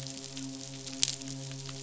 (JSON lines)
{"label": "biophony, midshipman", "recorder": "SoundTrap 500"}